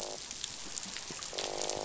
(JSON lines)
{"label": "biophony, croak", "recorder": "SoundTrap 500"}